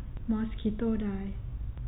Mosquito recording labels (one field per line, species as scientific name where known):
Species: mosquito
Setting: cup